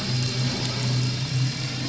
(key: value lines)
label: anthrophony, boat engine
recorder: SoundTrap 500